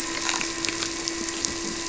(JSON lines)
{"label": "anthrophony, boat engine", "recorder": "SoundTrap 300"}